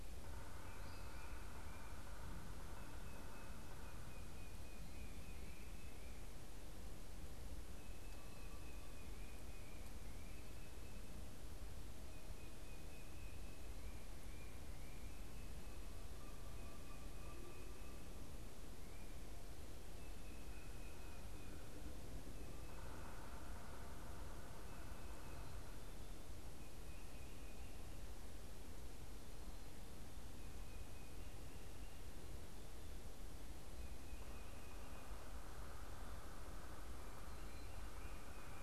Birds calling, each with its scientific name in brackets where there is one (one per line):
Yellow-bellied Sapsucker (Sphyrapicus varius)